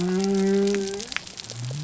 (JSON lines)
{"label": "biophony", "recorder": "SoundTrap 300"}